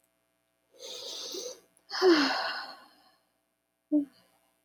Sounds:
Sigh